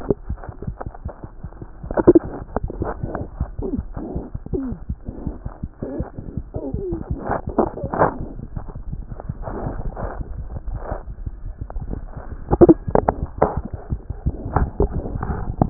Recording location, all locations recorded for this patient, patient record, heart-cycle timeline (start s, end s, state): aortic valve (AV)
aortic valve (AV)+mitral valve (MV)
#Age: Infant
#Sex: Female
#Height: nan
#Weight: 7.2 kg
#Pregnancy status: False
#Murmur: Absent
#Murmur locations: nan
#Most audible location: nan
#Systolic murmur timing: nan
#Systolic murmur shape: nan
#Systolic murmur grading: nan
#Systolic murmur pitch: nan
#Systolic murmur quality: nan
#Diastolic murmur timing: nan
#Diastolic murmur shape: nan
#Diastolic murmur grading: nan
#Diastolic murmur pitch: nan
#Diastolic murmur quality: nan
#Outcome: Normal
#Campaign: 2014 screening campaign
0.00	4.88	unannotated
4.88	4.95	S1
4.95	5.07	systole
5.07	5.12	S2
5.12	5.27	diastole
5.27	5.34	S1
5.34	5.45	systole
5.45	5.51	S2
5.51	5.63	diastole
5.63	5.70	S1
5.70	5.82	systole
5.82	5.88	S2
5.88	6.01	diastole
6.01	6.07	S1
6.07	6.18	systole
6.18	6.24	S2
6.24	6.37	diastole
6.37	6.43	S1
6.43	6.55	systole
6.55	6.61	S2
6.61	6.75	diastole
6.75	15.70	unannotated